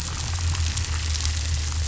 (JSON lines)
{"label": "anthrophony, boat engine", "recorder": "SoundTrap 500"}